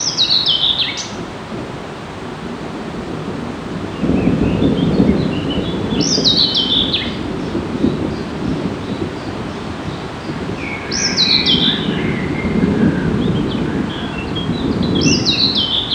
Are there crickets chirping?
no